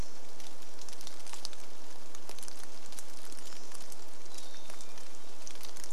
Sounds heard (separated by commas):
Hermit Thrush song, rain, Pacific-slope Flycatcher song